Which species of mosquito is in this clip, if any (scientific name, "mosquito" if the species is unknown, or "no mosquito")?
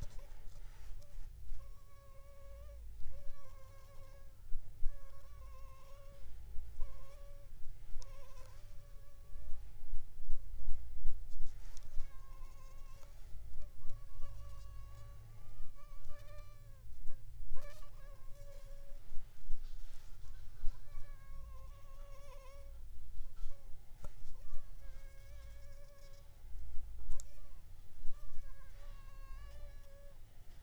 Anopheles funestus s.s.